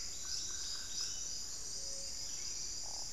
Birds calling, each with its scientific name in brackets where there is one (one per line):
unidentified bird
Buff-throated Saltator (Saltator maximus)
Gray-fronted Dove (Leptotila rufaxilla)
Solitary Black Cacique (Cacicus solitarius)